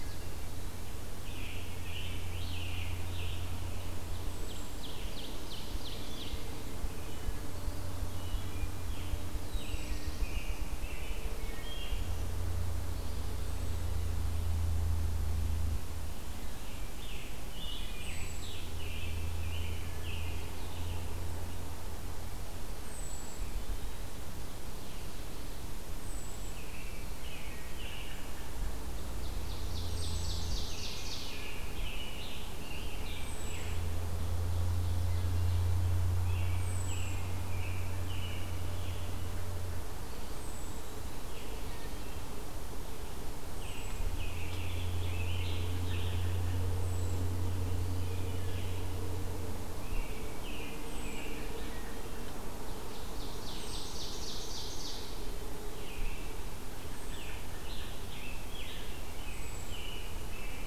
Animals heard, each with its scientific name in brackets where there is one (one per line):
Scarlet Tanager (Piranga olivacea)
American Robin (Turdus migratorius)
Black-throated Blue Warbler (Setophaga caerulescens)
Ruffed Grouse (Bonasa umbellus)
Ovenbird (Seiurus aurocapilla)
Wood Thrush (Hylocichla mustelina)